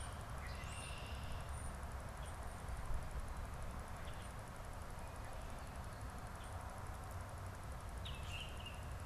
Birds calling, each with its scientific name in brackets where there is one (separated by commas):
European Starling (Sturnus vulgaris), Red-winged Blackbird (Agelaius phoeniceus), Baltimore Oriole (Icterus galbula)